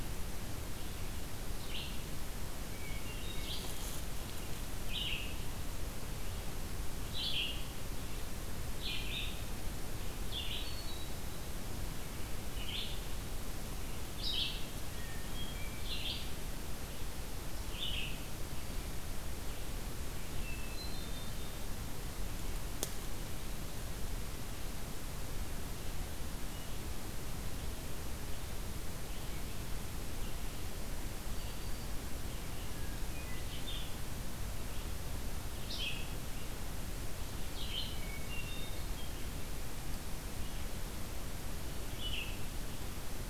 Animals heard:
Black-throated Green Warbler (Setophaga virens), Hermit Thrush (Catharus guttatus), Red-eyed Vireo (Vireo olivaceus)

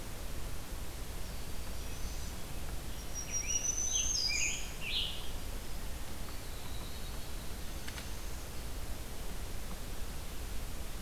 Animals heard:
unidentified call, Scarlet Tanager (Piranga olivacea), Black-throated Green Warbler (Setophaga virens), Eastern Wood-Pewee (Contopus virens)

